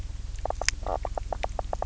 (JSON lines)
{"label": "biophony, knock croak", "recorder": "SoundTrap 300"}